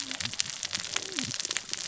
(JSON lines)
{"label": "biophony, cascading saw", "recorder": "SoundTrap 600 or HydroMoth"}